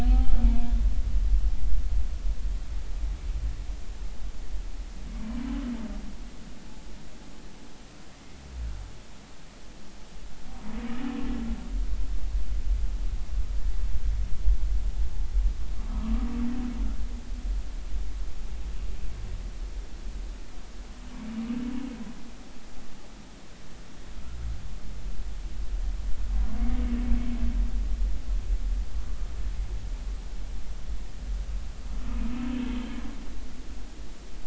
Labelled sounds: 0.0	0.4	humpback whale, 0.80 to 0.83 kHz
32.6	32.8	humpback whale, 3.1 to 3.3 kHz

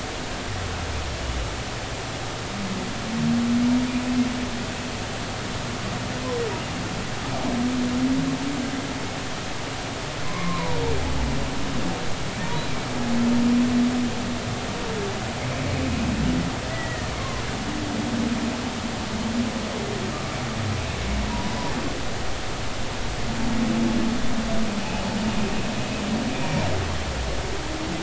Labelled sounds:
10.2	10.8	humpback whale, 0.90 to 1.2 kHz
16.7	17.1	humpback whale, 1.7 to 2.0 kHz
20.1	20.4	humpback whale, 1.1 to 1.3 kHz
21.3	21.6	humpback whale, 0.90 to 1.0 kHz
26.4	26.7	humpback whale, 2.2 to 2.5 kHz

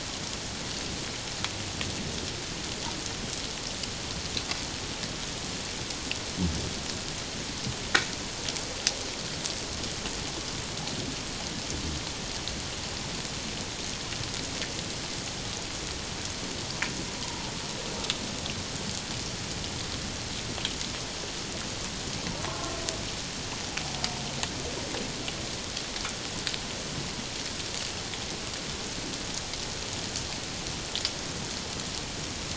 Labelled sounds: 17.2	17.5	humpback whale, 0.84 to 1.1 kHz
22.5	22.8	humpback whale, 1.0 to 1.5 kHz

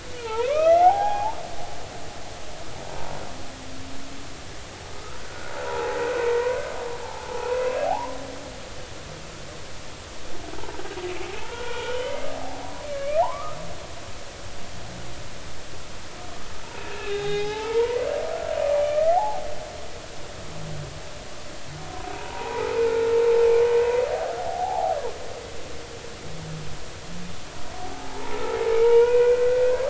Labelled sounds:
0.2	1.4	humpback whale, 0.80 to 2.7 kHz
4.9	6.6	humpback whale, 0.80 to 1.6 kHz
7.0	8.1	humpback whale, 0.80 to 1.1 kHz
11.4	13.6	humpback whale, 0.80 to 3.1 kHz
16.9	18.0	humpback whale, 0.80 to 3.9 kHz
18.7	19.4	humpback whale, 0.80 to 2.4 kHz
22.1	23.2	humpback whale, 0.80 to 1.5 kHz
24.4	25.0	humpback whale, 0.80 to 0.93 kHz
27.8	29.8	humpback whale, 0.80 to 2.6 kHz

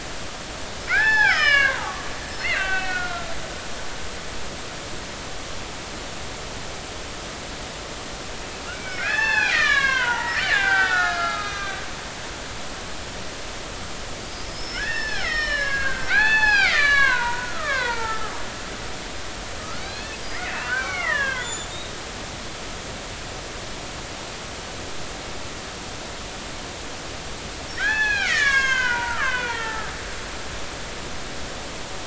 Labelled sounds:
0.9	3.4	killer whale, Bigg's (transient), 0.80 to 5.4 kHz
8.7	11.8	killer whale, Bigg's (transient), 0.80 to 6.0 kHz
14.2	18.3	killer whale, Bigg's (transient), 0.80 to 6.4 kHz
19.6	21.9	killer whale, Bigg's (transient), 0.96 to 7.2 kHz
27.8	30.0	killer whale, Bigg's (transient), 0.80 to 7.1 kHz

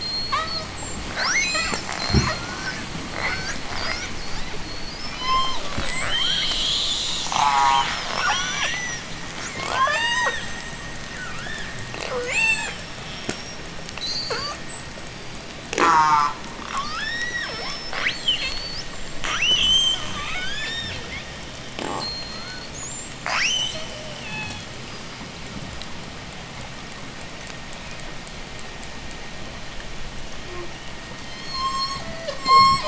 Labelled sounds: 0.0	7.3	killer whale, J pod, 0.58 to 8.0 kHz
7.2	8.1	killer whale, J pod, call S04, 0.34 to 1.7 kHz
8.2	15.6	killer whale, J pod, 0.27 to 8.0 kHz
15.6	16.5	killer whale, J pod, call S04, 0.16 to 8.0 kHz
16.5	18.8	killer whale, J pod, 0.34 to 8.0 kHz
19.2	21.3	killer whale, J pod, 0.95 to 8.0 kHz
21.9	24.8	killer whale, J pod, 0.39 to 8.0 kHz
25.2	29.3	killer whale, J pod, 6.6 to 8.0 kHz
31.2	32.8	killer whale, J pod, call S03, 0.27 to 8.0 kHz

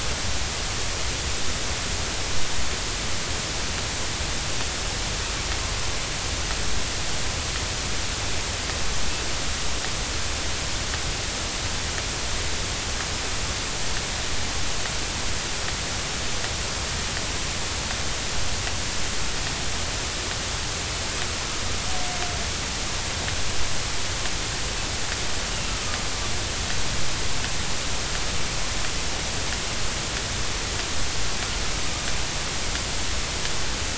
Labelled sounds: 25.5	25.8	killer whale, northern resident, A clan, AA subclan, 2.7 to 2.9 kHz

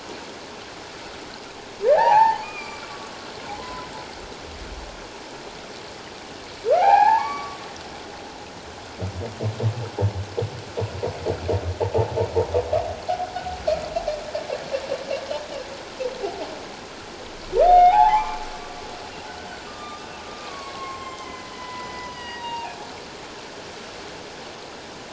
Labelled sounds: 1.8	3.1	humpback whale, 0.78 to 2.5 kHz
3.6	3.9	humpback whale, 0.97 to 1.1 kHz
6.7	7.6	humpback whale, 0.78 to 2.6 kHz
17.6	18.4	humpback whale, 0.78 to 3.7 kHz
19.7	22.8	humpback whale, 0.78 to 7.7 kHz

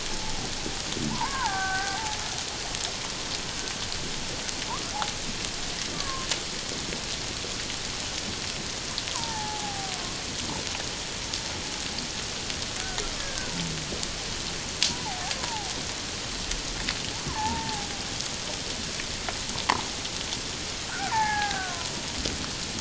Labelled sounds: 1.1	2.2	killer whale, Bigg's (transient), 0.78 to 1.8 kHz
5.9	6.3	killer whale, Bigg's (transient), 1.0 to 1.2 kHz
9.1	10.0	killer whale, Bigg's (transient), 0.78 to 1.8 kHz
13.2	13.5	killer whale, Bigg's (transient), 1.4 to 1.8 kHz
14.9	15.7	killer whale, Bigg's (transient), 0.78 to 1.1 kHz
17.2	17.9	killer whale, Bigg's (transient), 0.78 to 1.2 kHz
20.9	22.1	killer whale, Bigg's (transient), 0.78 to 1.9 kHz

